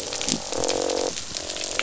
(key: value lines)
label: biophony, croak
recorder: SoundTrap 500